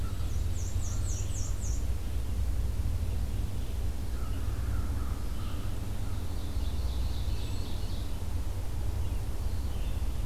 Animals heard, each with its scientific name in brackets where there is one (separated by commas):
Red-eyed Vireo (Vireo olivaceus), Hermit Thrush (Catharus guttatus), Black-and-white Warbler (Mniotilta varia), American Crow (Corvus brachyrhynchos), Ovenbird (Seiurus aurocapilla)